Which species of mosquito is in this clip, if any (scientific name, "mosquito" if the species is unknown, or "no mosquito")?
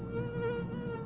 Aedes albopictus